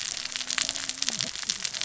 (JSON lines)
{"label": "biophony, cascading saw", "recorder": "SoundTrap 600 or HydroMoth"}